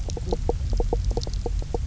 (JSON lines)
{"label": "biophony, knock croak", "recorder": "SoundTrap 300"}